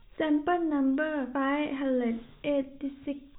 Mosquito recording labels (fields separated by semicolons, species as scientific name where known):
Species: no mosquito; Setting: cup